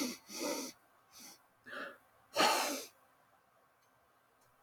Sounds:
Sniff